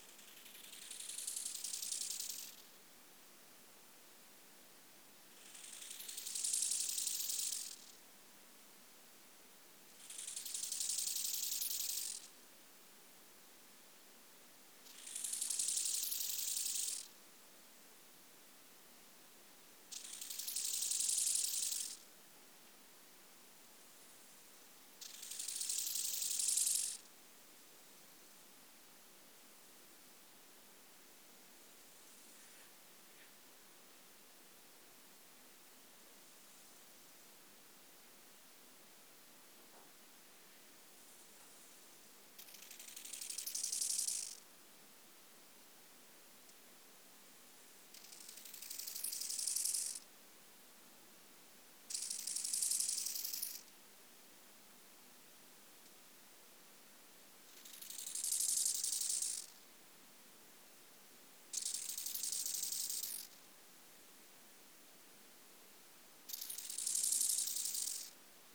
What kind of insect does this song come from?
orthopteran